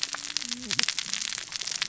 {"label": "biophony, cascading saw", "recorder": "SoundTrap 600 or HydroMoth"}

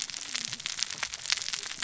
{"label": "biophony, cascading saw", "recorder": "SoundTrap 600 or HydroMoth"}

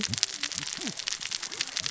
{"label": "biophony, cascading saw", "recorder": "SoundTrap 600 or HydroMoth"}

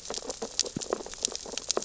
{"label": "biophony, sea urchins (Echinidae)", "recorder": "SoundTrap 600 or HydroMoth"}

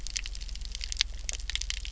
{"label": "anthrophony, boat engine", "recorder": "SoundTrap 300"}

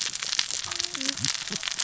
{"label": "biophony, cascading saw", "recorder": "SoundTrap 600 or HydroMoth"}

